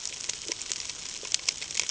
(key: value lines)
label: ambient
recorder: HydroMoth